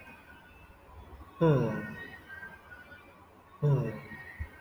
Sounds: Sigh